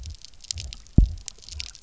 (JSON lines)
{"label": "biophony, double pulse", "recorder": "SoundTrap 300"}